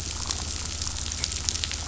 {"label": "anthrophony, boat engine", "recorder": "SoundTrap 500"}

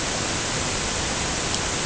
{"label": "ambient", "recorder": "HydroMoth"}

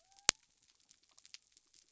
{"label": "biophony", "recorder": "SoundTrap 300"}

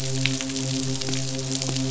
{"label": "biophony, midshipman", "recorder": "SoundTrap 500"}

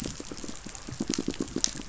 {"label": "biophony, pulse", "recorder": "SoundTrap 500"}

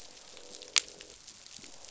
{"label": "biophony, croak", "recorder": "SoundTrap 500"}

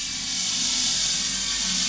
{"label": "anthrophony, boat engine", "recorder": "SoundTrap 500"}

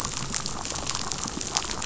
{"label": "biophony, chatter", "recorder": "SoundTrap 500"}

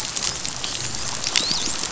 {"label": "biophony, dolphin", "recorder": "SoundTrap 500"}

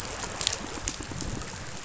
{"label": "biophony", "recorder": "SoundTrap 500"}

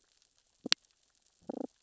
{"label": "biophony, damselfish", "recorder": "SoundTrap 600 or HydroMoth"}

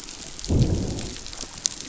{"label": "biophony, growl", "recorder": "SoundTrap 500"}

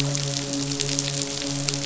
{"label": "biophony, midshipman", "recorder": "SoundTrap 500"}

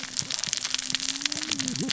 {"label": "biophony, cascading saw", "recorder": "SoundTrap 600 or HydroMoth"}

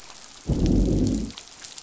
{"label": "biophony, growl", "recorder": "SoundTrap 500"}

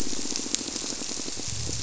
{"label": "biophony, squirrelfish (Holocentrus)", "recorder": "SoundTrap 300"}
{"label": "biophony", "recorder": "SoundTrap 300"}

